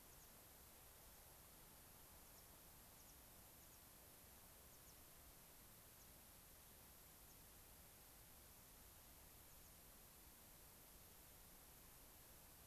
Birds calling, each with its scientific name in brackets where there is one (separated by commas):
American Pipit (Anthus rubescens)